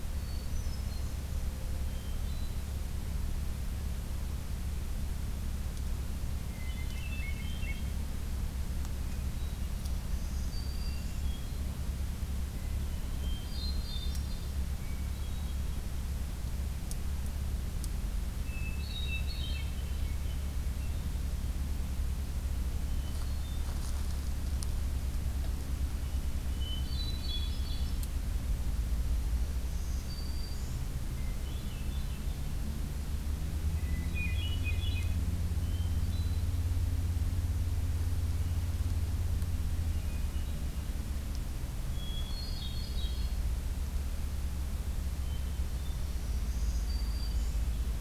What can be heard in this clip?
Hermit Thrush, Black-throated Green Warbler, Swainson's Thrush